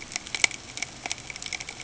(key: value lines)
label: ambient
recorder: HydroMoth